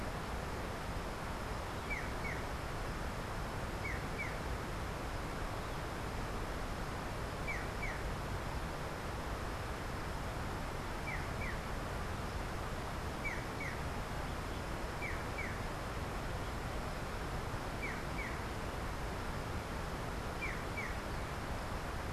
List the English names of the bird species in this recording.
Black-chested Jay